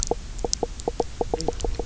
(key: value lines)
label: biophony, knock croak
recorder: SoundTrap 300